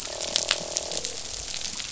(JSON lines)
{"label": "biophony, croak", "recorder": "SoundTrap 500"}